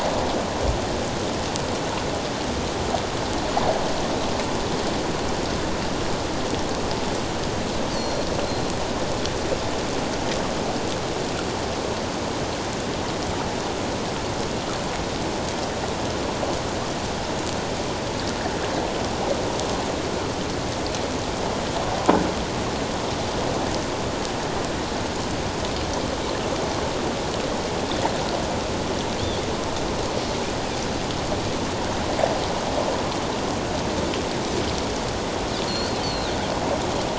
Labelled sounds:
7.9	8.7	Pacific white-sided dolphin, 4.1 to 4.8 kHz
35.7	36.3	Pacific white-sided dolphin, 3.5 to 4.6 kHz

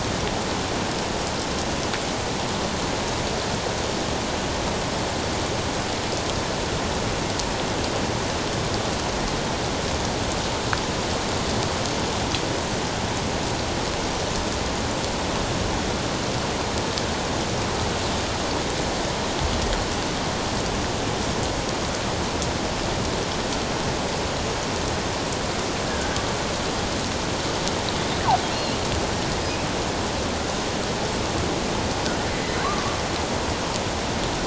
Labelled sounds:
25.9	26.2	killer whale, offshore, 1.5 to 1.8 kHz
32.3	32.6	killer whale, offshore, 1.9 to 2.1 kHz

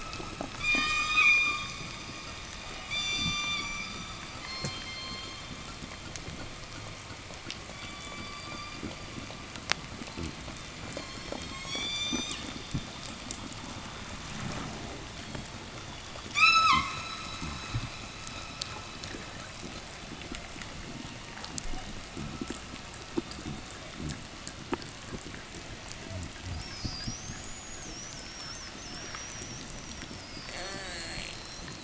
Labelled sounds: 0.4	1.8	killer whale, southern resident, 0.12 to 8.0 kHz
2.9	4.1	killer whale, southern resident, 0 to 8.0 kHz
4.4	5.5	killer whale, southern resident, 0 to 7.5 kHz
7.5	9.1	killer whale, southern resident, 0.29 to 5.2 kHz
11.0	13.0	killer whale, southern resident, 0 to 8.0 kHz
16.3	17.2	killer whale, southern resident, 0 to 8.0 kHz
26.0	31.8	killer whale, southern resident, 3.3 to 8.0 kHz
30.2	31.5	killer whale, southern resident, call S04, 0 to 8.0 kHz

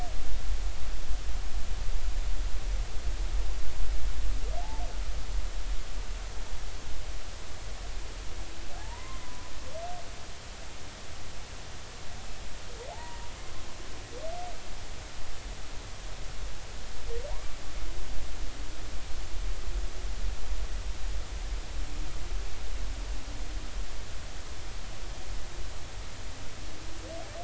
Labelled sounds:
8.8	9.5	humpback whale, 0.80 to 1.1 kHz
12.9	13.3	humpback whale, 0.80 to 1.0 kHz
17.3	17.5	humpback whale, 0.86 to 1.2 kHz

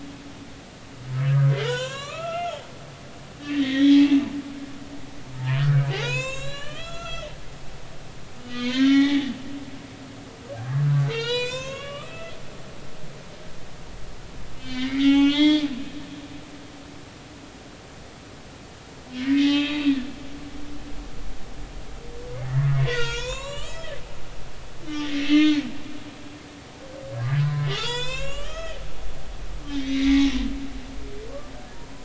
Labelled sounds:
0.0	0.3	humpback whale, 2.5 to 2.9 kHz
1.6	2.6	humpback whale, 0.86 to 7.5 kHz
3.4	4.1	humpback whale, 1.7 to 3.8 kHz
5.3	9.3	humpback whale, 0.80 to 7.7 kHz
10.8	12.4	humpback whale, 0.86 to 7.8 kHz
14.6	15.6	humpback whale, 0.80 to 5.0 kHz
19.2	19.9	humpback whale, 1.1 to 3.9 kHz
22.5	25.6	humpback whale, 0.90 to 7.9 kHz
27.4	28.8	humpback whale, 0.80 to 7.9 kHz
29.7	30.3	humpback whale, 1.9 to 3.9 kHz

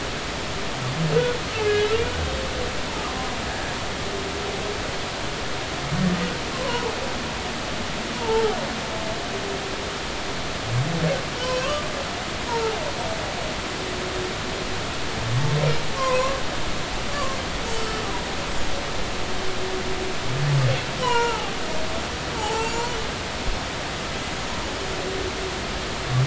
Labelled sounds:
1.5	1.8	humpback whale, 2.5 to 2.8 kHz
6.5	6.9	humpback whale, 0.90 to 1.1 kHz
8.1	8.6	humpback whale, 0.80 to 1.0 kHz
11.4	11.8	humpback whale, 0.96 to 2.8 kHz
12.5	12.7	humpback whale, 0.83 to 1.4 kHz
16.0	16.4	humpback whale, 0.96 to 2.1 kHz
17.1	17.4	humpback whale, 0.99 to 1.2 kHz
21.0	21.6	humpback whale, 0.80 to 3.1 kHz
22.4	22.8	humpback whale, 0.80 to 8.0 kHz

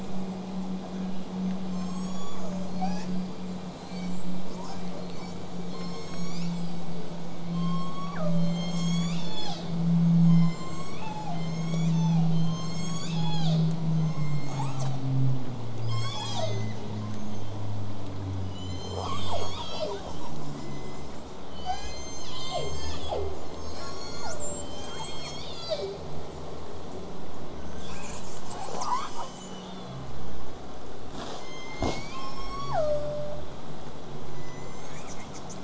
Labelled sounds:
1.7	3.0	killer whale, southern resident, J pod, call S03, 0.35 to 8.0 kHz
2.7	4.6	killer whale, southern resident, call S42, 0.54 to 8.0 kHz
4.6	5.0	killer whale, southern resident, 0.66 to 8.0 kHz
5.0	5.7	killer whale, southern resident, call S42, 0.58 to 8.0 kHz
5.7	7.2	killer whale, southern resident, call S01, 0.23 to 8.0 kHz
6.5	7.1	killer whale, southern resident, whistle, 7.4 to 8.0 kHz
7.5	8.7	killer whale, southern resident, J pod, call S03, 0.58 to 8.0 kHz
8.4	9.8	killer whale, southern resident, call S01, 0.39 to 8.0 kHz
10.2	15.1	killer whale, southern resident, call S01, 0.42 to 8.0 kHz
14.5	14.9	killer whale, southern resident, L pod, call S33, 0.42 to 8.0 kHz
15.8	16.8	killer whale, southern resident, call S01, 0.21 to 8.0 kHz
17.1	17.5	killer whale, southern resident, whistle, 6.1 to 8.0 kHz
18.5	21.2	killer whale, southern resident, 0.19 to 8.0 kHz
21.5	23.4	killer whale, southern resident, 0.19 to 8.0 kHz
24.5	26.0	killer whale, southern resident, call S01, 0.12 to 8.0 kHz
24.8	25.3	killer whale, southern resident, L pod, call S33, 6.6 to 8.0 kHz
25.9	26.4	killer whale, southern resident, whistle, 6.8 to 8.0 kHz
27.8	30.0	killer whale, southern resident, 0.42 to 8.0 kHz
31.3	32.5	killer whale, southern resident, call S01, 0.58 to 8.0 kHz
32.1	33.4	killer whale, southern resident, J pod, call S03, 0.46 to 8.0 kHz
34.3	35.5	killer whale, southern resident, 0.96 to 8.0 kHz

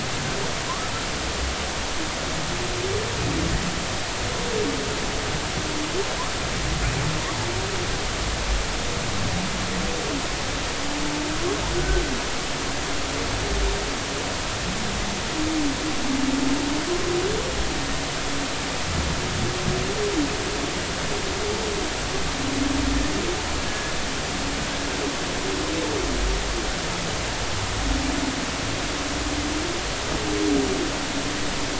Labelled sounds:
11.8	12.0	humpback whale, 1.4 to 1.6 kHz
23.7	23.9	humpback whale, 1.66 to 1.73 kHz

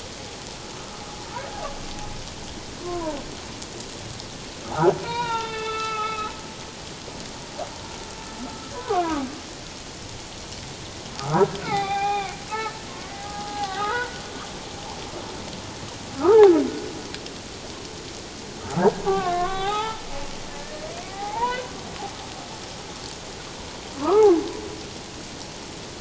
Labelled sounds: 2.8	3.2	humpback whale, 0.88 to 1.2 kHz
4.6	6.3	humpback whale, 0.78 to 4.3 kHz
8.7	9.2	humpback whale, 0.91 to 1.7 kHz
11.2	12.3	humpback whale, 0.78 to 4.2 kHz
13.1	14.2	humpback whale, 0.78 to 1.7 kHz
18.6	20.0	humpback whale, 0.78 to 3.8 kHz
20.6	21.7	humpback whale, 0.78 to 2.6 kHz
24.0	24.3	humpback whale, 0.88 to 1.4 kHz

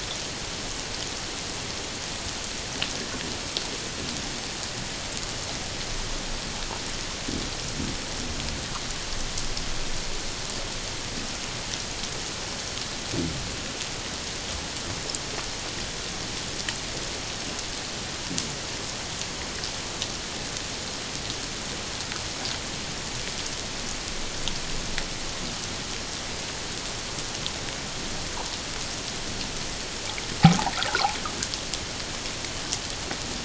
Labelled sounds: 30.4	31.1	water noise, 0.78 to 1.7 kHz

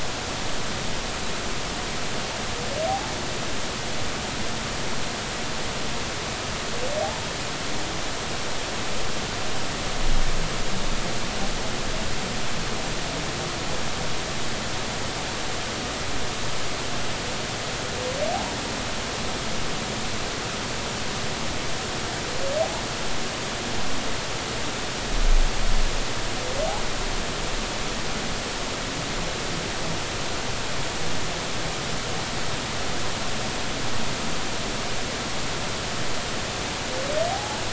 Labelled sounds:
2.9	3.1	humpback whale, 0.80 to 0.93 kHz
7.0	7.3	humpback whale, 0.80 to 1.1 kHz
37.3	37.6	humpback whale, 0.80 to 0.90 kHz

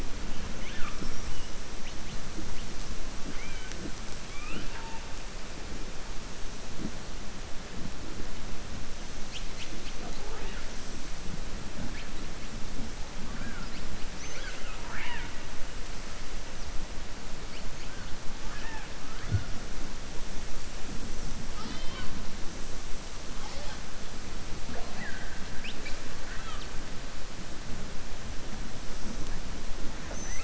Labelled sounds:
13.2	13.7	killer whale, southern resident, 1.1 to 2.4 kHz
18.4	18.9	killer whale, southern resident, 0.83 to 3.1 kHz

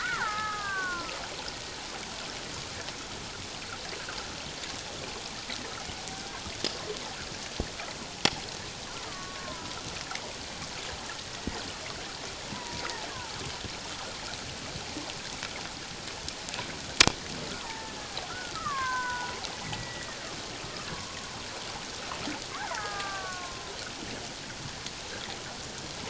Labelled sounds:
9.1	9.8	killer whale, Bigg's (transient), 0.94 to 1.3 kHz
12.5	13.4	killer whale, Bigg's (transient), 0.81 to 1.7 kHz
17.5	20.2	killer whale, Bigg's (transient), 0.78 to 2.3 kHz
20.8	21.2	killer whale, Bigg's (transient), 0.94 to 1.2 kHz
22.6	23.7	killer whale, Bigg's (transient), 0.78 to 2.0 kHz

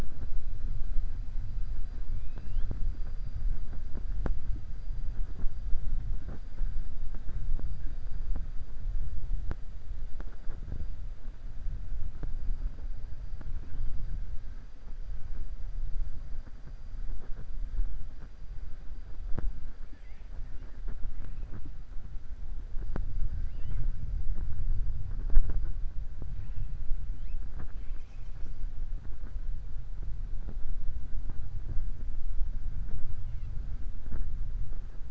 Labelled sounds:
19.8	20.3	killer whale, 1.7 to 3.4 kHz

